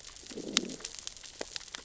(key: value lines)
label: biophony, growl
recorder: SoundTrap 600 or HydroMoth